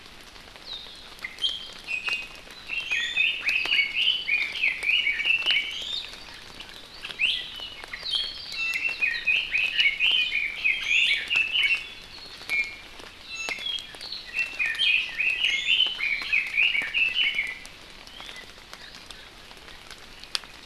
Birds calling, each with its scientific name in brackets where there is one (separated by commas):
Iiwi (Drepanis coccinea), Red-billed Leiothrix (Leiothrix lutea)